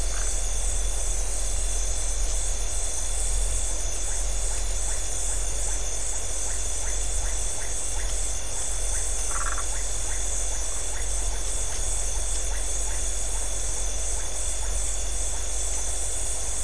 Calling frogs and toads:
Phyllomedusa distincta, Leptodactylus notoaktites

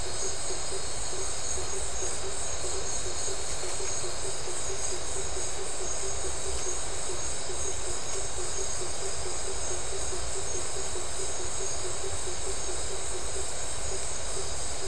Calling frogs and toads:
Boana faber

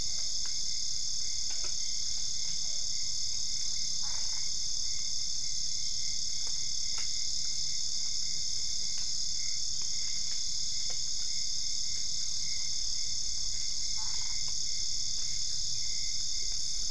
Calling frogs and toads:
Physalaemus cuvieri, Boana albopunctata

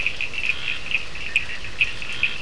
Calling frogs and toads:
Scinax perereca, Sphaenorhynchus surdus

